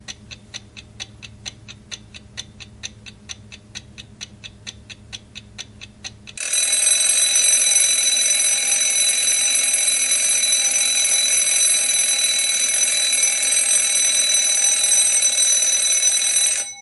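An alarm clock ticks in a steady pattern. 0.0 - 6.4
An alarm clock is ringing loudly. 6.4 - 16.8

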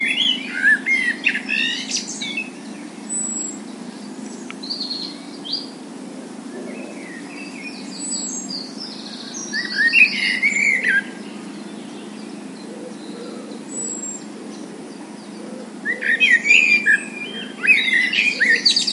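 A blackbird is chirping. 0.0 - 2.4
Birds chirping. 4.5 - 5.8
Birds chirping. 6.6 - 9.5
A blackbird is chirping. 9.6 - 11.1
A blackbird is chirping. 15.8 - 18.9

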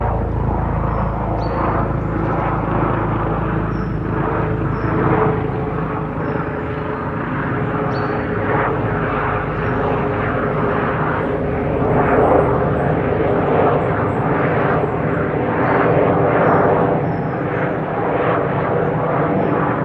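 A muffled propeller plane flies overhead. 0.0 - 19.8
Birds chirp happily in the distance. 1.1 - 10.8
Birds chirp happily in the distance. 12.6 - 19.8

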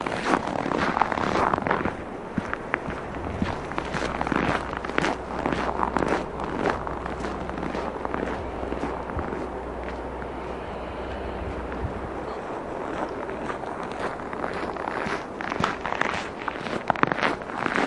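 Snow crunches loudly and repeatedly. 0.0 - 1.9
A man walks loudly on snow outdoors. 0.0 - 2.1
Wind blows strongly outdoors at a low volume repeatedly. 0.0 - 17.9
Man walking loudly outdoors on a clean road. 2.0 - 3.8
A man walks loudly on snow outdoors. 3.8 - 6.9
Snow crunches loudly and repeatedly. 3.8 - 6.8
Footsteps walking loudly on snow, gradually fading out. 6.7 - 11.1
Snow crunches loudly and slowly fades out. 6.8 - 11.1
Snow crunches loudly and slowly fades. 13.0 - 15.7
Man walks loudly and slowly fading in on snow outdoors. 13.0 - 15.7
Snow crunches loudly and repeatedly. 15.6 - 17.9
A man walks loudly on snow outdoors. 15.6 - 17.9

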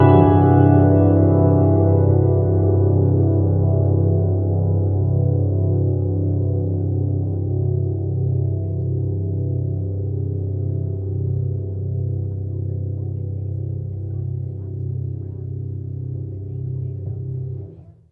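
A piano note is played, gradually getting quieter. 0.0 - 18.1

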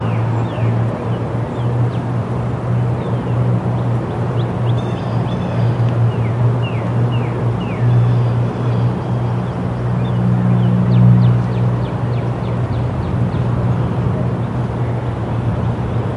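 Bird chirping with distant traffic noise. 0.0 - 16.2

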